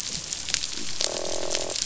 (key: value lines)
label: biophony, croak
recorder: SoundTrap 500